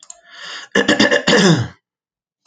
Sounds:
Throat clearing